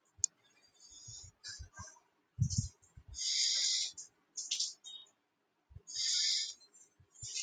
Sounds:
Sniff